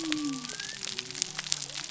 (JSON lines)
{"label": "biophony", "recorder": "SoundTrap 300"}